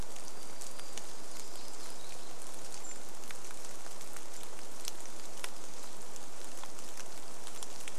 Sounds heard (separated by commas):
rain, warbler song, Golden-crowned Kinglet call